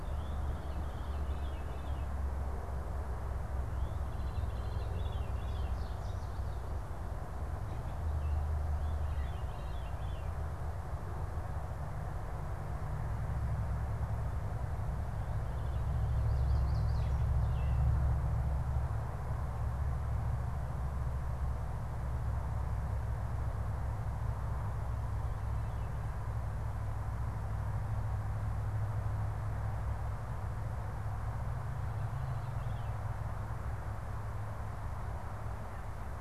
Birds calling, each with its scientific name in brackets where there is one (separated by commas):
Yellow Warbler (Setophaga petechia), Gray Catbird (Dumetella carolinensis), Veery (Catharus fuscescens)